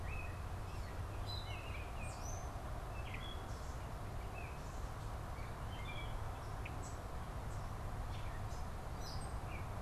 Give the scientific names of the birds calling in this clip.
Dumetella carolinensis, Icterus galbula